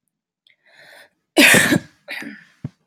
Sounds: Cough